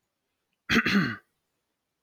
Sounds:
Throat clearing